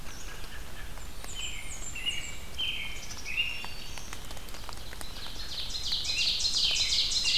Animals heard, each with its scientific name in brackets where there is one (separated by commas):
Red-eyed Vireo (Vireo olivaceus), American Robin (Turdus migratorius), Black-capped Chickadee (Poecile atricapillus), Black-throated Green Warbler (Setophaga virens), Blackburnian Warbler (Setophaga fusca), Ovenbird (Seiurus aurocapilla)